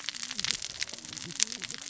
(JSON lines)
{"label": "biophony, cascading saw", "recorder": "SoundTrap 600 or HydroMoth"}